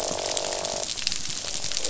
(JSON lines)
{"label": "biophony, croak", "recorder": "SoundTrap 500"}